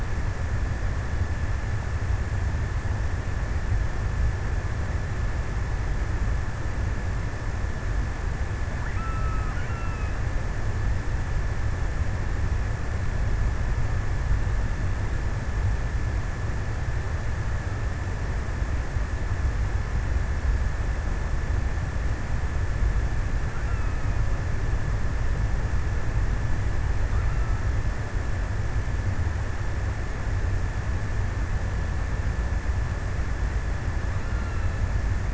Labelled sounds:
8.1	10.7	killer whale, offshore, 0.97 to 3.1 kHz
22.8	24.5	killer whale, offshore, 0.99 to 3.0 kHz
26.5	28.0	killer whale, offshore, 0.97 to 3.1 kHz
33.8	35.3	killer whale, offshore, 1.0 to 3.0 kHz

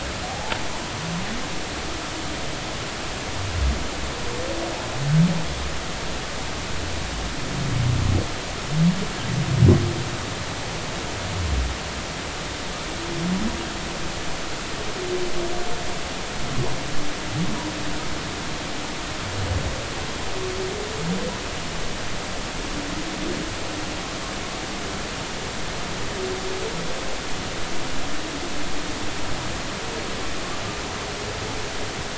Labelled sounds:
0.3	0.6	humpback whale, 0.80 to 0.96 kHz

